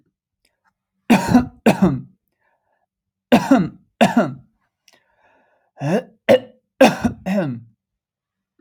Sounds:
Cough